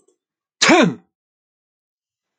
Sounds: Sneeze